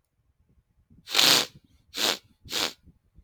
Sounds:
Sneeze